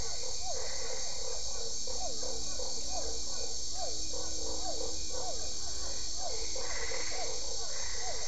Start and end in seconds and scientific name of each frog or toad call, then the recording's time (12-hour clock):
0.0	1.5	Boana albopunctata
0.0	8.2	Boana lundii
0.0	8.2	Physalaemus cuvieri
6.5	8.2	Boana albopunctata
7:00pm